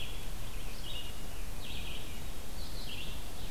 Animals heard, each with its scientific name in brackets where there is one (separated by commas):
Ovenbird (Seiurus aurocapilla), Red-eyed Vireo (Vireo olivaceus)